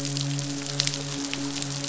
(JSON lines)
{"label": "biophony, midshipman", "recorder": "SoundTrap 500"}